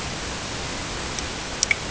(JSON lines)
{"label": "ambient", "recorder": "HydroMoth"}